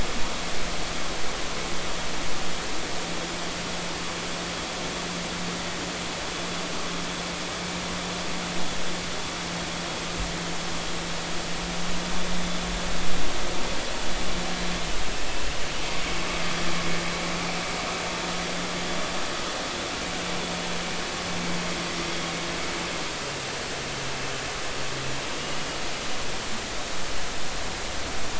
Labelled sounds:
25.4	25.7	vessel noise, 2.8 to 3.0 kHz

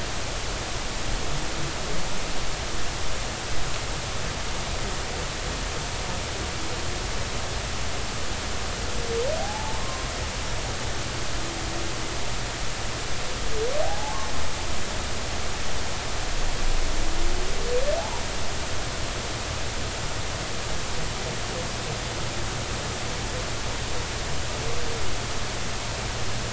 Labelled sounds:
9.4	10.1	humpback whale, 0.80 to 1.1 kHz
13.8	14.3	humpback whale, 0.80 to 1.2 kHz

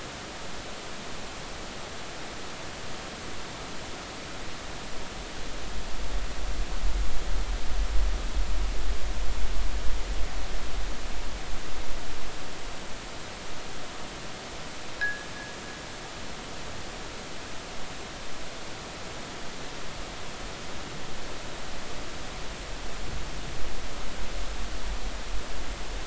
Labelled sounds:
15.0	15.3	fishing gear, 1.5 to 1.8 kHz

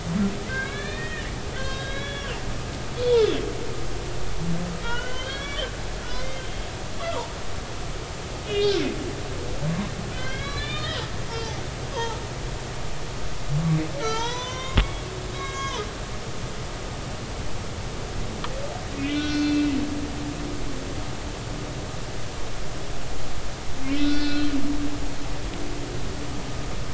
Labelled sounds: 0.4	2.3	humpback whale, 1.0 to 4.9 kHz
3.0	3.5	humpback whale, 2.1 to 3.8 kHz
4.8	5.7	humpback whale, 1.3 to 6.2 kHz
6.1	6.7	humpback whale, 2.0 to 4.8 kHz
7.0	7.3	humpback whale, 0.83 to 1.4 kHz
8.4	8.8	humpback whale, 2.8 to 3.4 kHz
10.1	11.0	humpback whale, 1.2 to 5.0 kHz
11.3	12.2	humpback whale, 0.80 to 5.1 kHz
14.0	15.1	humpback whale, 0.86 to 6.2 kHz
15.3	15.9	humpback whale, 0.90 to 6.6 kHz
18.9	19.7	humpback whale, 1.4 to 4.5 kHz
23.9	24.5	humpback whale, 1.4 to 4.7 kHz

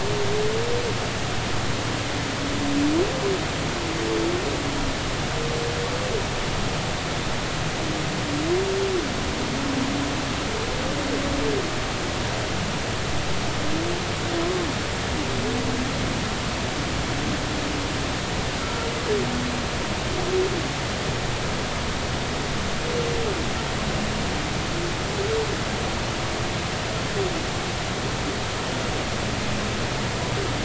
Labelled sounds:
14.4	14.7	humpback whale, 0.99 to 1.2 kHz
18.6	18.9	humpback whale, 1.3 to 1.4 kHz

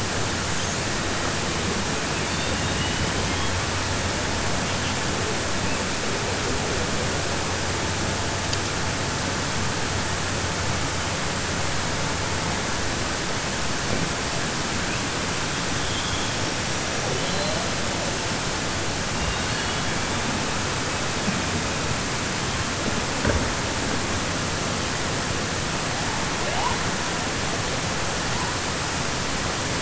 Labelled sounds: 2.2	3.0	killer whale, southern resident, 1.9 to 4.6 kHz
15.8	16.3	killer whale, southern resident, 2.4 to 3.6 kHz
17.1	17.5	killer whale, southern resident, 3.0 to 4.2 kHz

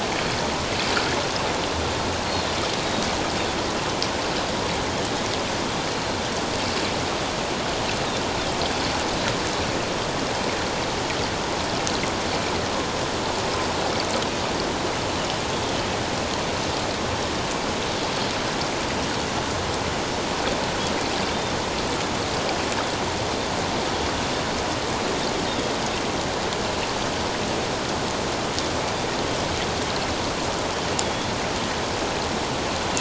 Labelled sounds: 2.8	3.1	Pacific white-sided dolphin, 3.7 to 4.0 kHz
5.9	6.2	Pacific white-sided dolphin, 4.1 to 4.3 kHz
31.0	31.3	Pacific white-sided dolphin, 3.3 to 3.5 kHz

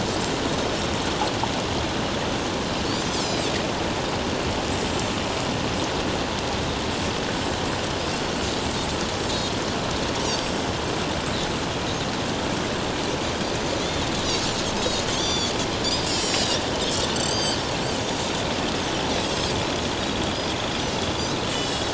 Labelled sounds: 3.1	3.5	Pacific white-sided dolphin, 4.5 to 7.4 kHz
10.2	10.6	Pacific white-sided dolphin, 4.5 to 6.2 kHz
15.1	16.6	Pacific white-sided dolphin, 3.1 to 7.9 kHz
17.1	17.6	Pacific white-sided dolphin, 3.0 to 8.0 kHz
21.5	21.9	Pacific white-sided dolphin, 2.8 to 8.0 kHz

